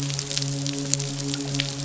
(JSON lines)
{"label": "biophony, midshipman", "recorder": "SoundTrap 500"}